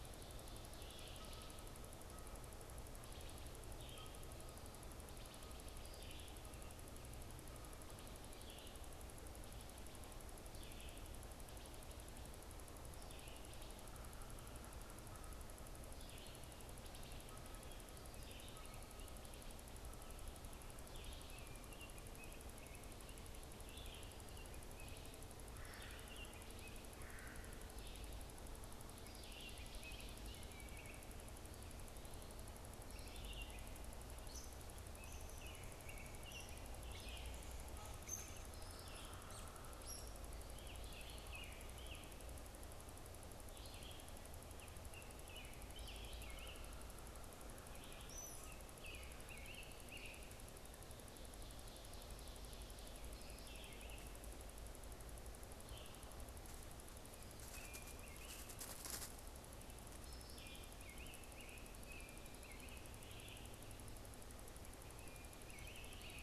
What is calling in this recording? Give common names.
Red-eyed Vireo, Wood Thrush, American Robin, Red-bellied Woodpecker